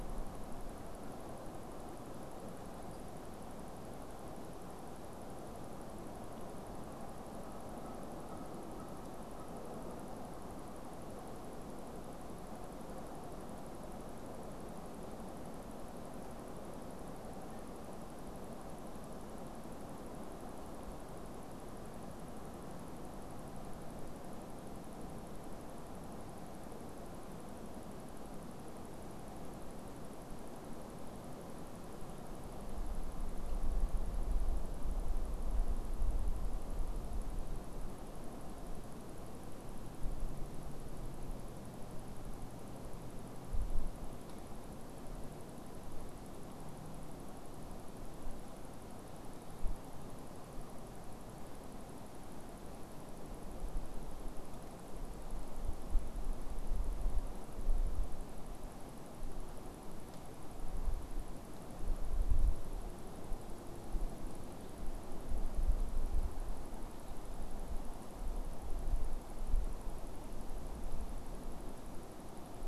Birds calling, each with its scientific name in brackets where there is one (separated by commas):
Canada Goose (Branta canadensis)